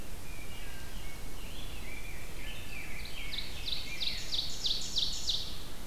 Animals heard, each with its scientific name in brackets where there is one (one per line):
Rose-breasted Grosbeak (Pheucticus ludovicianus)
Wood Thrush (Hylocichla mustelina)
Ovenbird (Seiurus aurocapilla)